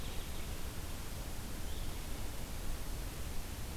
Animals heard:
forest ambience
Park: Marsh-Billings-Rockefeller National Historical Park